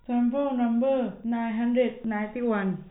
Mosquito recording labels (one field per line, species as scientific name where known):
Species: no mosquito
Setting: cup